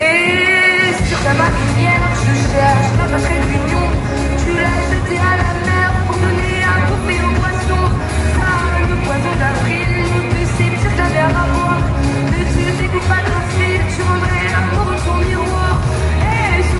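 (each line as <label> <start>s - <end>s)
A woman sings with music playing in the background. 0.1s - 16.8s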